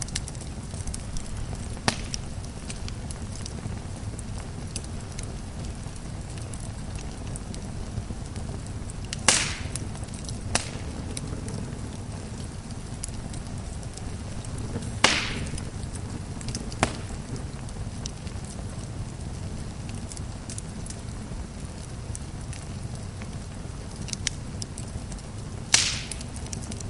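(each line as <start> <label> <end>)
0.1 A fire burns loudly. 1.8
1.8 Loud crackling of logs burning. 2.2
2.2 Fire burning intensely. 9.1
9.1 Loud crackling of logs burning. 11.0
10.8 Fire burns in a forest. 14.9
14.9 Logs crackle loudly in a fire. 15.3
15.4 Intense flames during a fire incident. 16.7
16.7 Logs crackling loudly in a fire. 17.0
17.0 Fire burning intensely. 23.9
24.0 Logs crackling loudly in a fire. 24.6
24.7 Fire burns intensely. 25.7
25.6 Loud crackling of burning logs. 26.9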